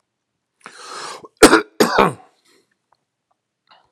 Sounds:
Cough